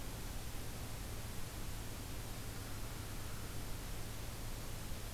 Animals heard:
forest ambience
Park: Acadia National Park